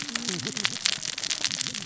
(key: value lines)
label: biophony, cascading saw
recorder: SoundTrap 600 or HydroMoth